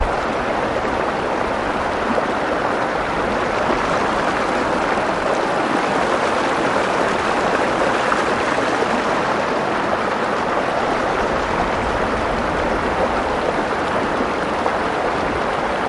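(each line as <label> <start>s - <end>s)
Water flows loudly down a river. 0.0s - 15.9s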